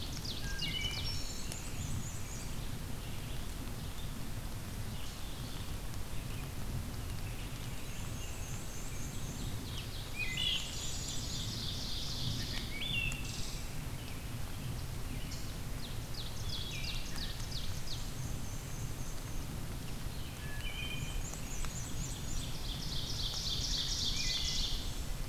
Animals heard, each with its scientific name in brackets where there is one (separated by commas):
Wood Thrush (Hylocichla mustelina), Black-and-white Warbler (Mniotilta varia), Ovenbird (Seiurus aurocapilla)